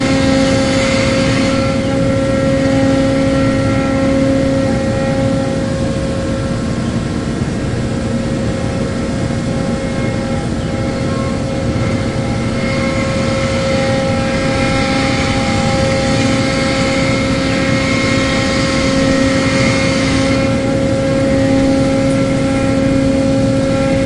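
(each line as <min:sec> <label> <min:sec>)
0:00.0 A vacuum cleaner runs steadily back and forth, growing louder and quieter. 0:24.1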